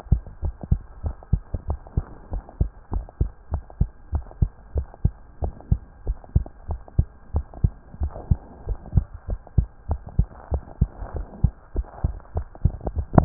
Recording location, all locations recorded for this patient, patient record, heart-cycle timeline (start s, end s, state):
tricuspid valve (TV)
aortic valve (AV)+pulmonary valve (PV)+tricuspid valve (TV)+mitral valve (MV)
#Age: Child
#Sex: Male
#Height: 114.0 cm
#Weight: 19.3 kg
#Pregnancy status: False
#Murmur: Absent
#Murmur locations: nan
#Most audible location: nan
#Systolic murmur timing: nan
#Systolic murmur shape: nan
#Systolic murmur grading: nan
#Systolic murmur pitch: nan
#Systolic murmur quality: nan
#Diastolic murmur timing: nan
#Diastolic murmur shape: nan
#Diastolic murmur grading: nan
#Diastolic murmur pitch: nan
#Diastolic murmur quality: nan
#Outcome: Abnormal
#Campaign: 2015 screening campaign
0.00	0.06	unannotated
0.06	0.22	S2
0.22	0.38	diastole
0.38	0.54	S1
0.54	0.68	systole
0.68	0.82	S2
0.82	1.01	diastole
1.01	1.16	S1
1.16	1.28	systole
1.28	1.44	S2
1.44	1.66	diastole
1.66	1.80	S1
1.80	1.94	systole
1.94	2.08	S2
2.08	2.30	diastole
2.30	2.42	S1
2.42	2.58	systole
2.58	2.72	S2
2.72	2.91	diastole
2.91	3.06	S1
3.06	3.17	systole
3.17	3.32	S2
3.32	3.50	diastole
3.50	3.64	S1
3.64	3.78	systole
3.78	3.90	S2
3.90	4.10	diastole
4.10	4.26	S1
4.26	4.38	systole
4.38	4.50	S2
4.50	4.71	diastole
4.71	4.86	S1
4.86	5.01	systole
5.01	5.16	S2
5.16	5.38	diastole
5.38	5.54	S1
5.54	5.68	systole
5.68	5.82	S2
5.82	6.03	diastole
6.03	6.18	S1
6.18	6.32	systole
6.32	6.48	S2
6.48	6.66	diastole
6.66	6.80	S1
6.80	6.96	systole
6.96	7.10	S2
7.10	7.30	diastole
7.30	7.46	S1
7.46	7.62	systole
7.62	7.74	S2
7.74	7.98	diastole
7.98	8.12	S1
8.12	8.28	systole
8.28	8.44	S2
8.44	8.65	diastole
8.65	8.80	S1
8.80	8.92	systole
8.92	9.08	S2
9.08	9.25	diastole
9.25	9.40	S1
9.40	9.54	systole
9.54	9.70	S2
9.70	9.86	diastole
9.86	10.02	S1
10.02	10.16	systole
10.16	10.30	S2
10.30	10.49	diastole
10.49	10.62	S1
10.62	10.78	systole
10.78	10.92	S2
10.92	11.14	diastole
11.14	11.26	S1
11.26	11.40	systole
11.40	11.52	S2
11.52	11.73	diastole
11.73	11.88	S1
11.88	12.01	systole
12.01	12.14	S2
12.14	12.32	diastole
12.32	12.48	S1
12.48	12.61	systole
12.61	12.76	S2
12.76	12.93	diastole
12.93	13.06	S1
13.06	13.25	unannotated